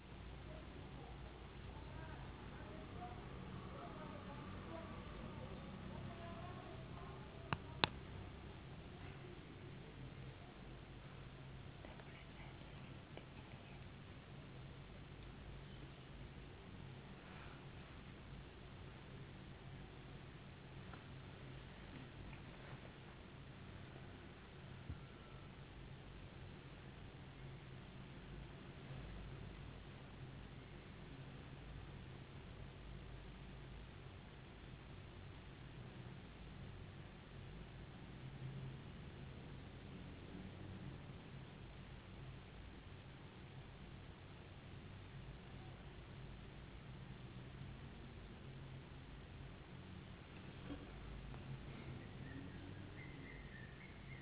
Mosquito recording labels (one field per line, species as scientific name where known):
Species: no mosquito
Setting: insect culture